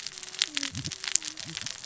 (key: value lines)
label: biophony, cascading saw
recorder: SoundTrap 600 or HydroMoth